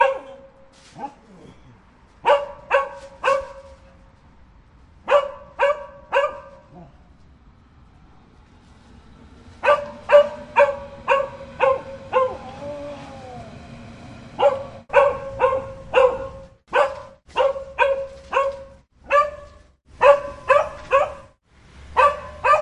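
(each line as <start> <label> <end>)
0.0 A dog barks once. 0.3
0.9 A dog barks quietly once. 1.6
2.2 A dog barks repeatedly with short pauses. 3.7
5.0 A dog barks repeatedly with short pauses. 6.5
6.6 A dog barks quietly once. 7.0
9.5 A dog barks repeatedly with short pauses. 12.4
12.4 A dog growls softly. 14.3
14.2 A dog barks repeatedly with short pauses. 22.6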